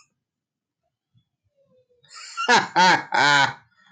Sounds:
Laughter